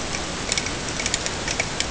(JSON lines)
{"label": "ambient", "recorder": "HydroMoth"}